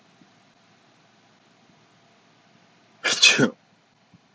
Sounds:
Sneeze